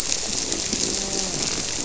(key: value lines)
label: biophony
recorder: SoundTrap 300

label: biophony, grouper
recorder: SoundTrap 300